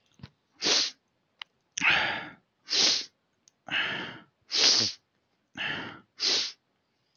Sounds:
Sniff